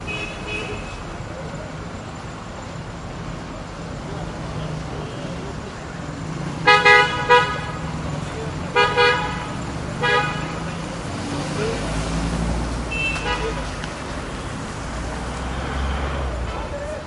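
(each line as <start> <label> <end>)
0.0 A car horn honks. 1.2
0.0 Continuous sound of several vehicles in motion, likely in a city area. 16.9
0.0 Many people are talking simultaneously in a bustling crowd. 17.0
6.6 Repetitive honking from a vehicle with small pauses. 10.4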